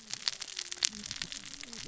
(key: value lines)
label: biophony, cascading saw
recorder: SoundTrap 600 or HydroMoth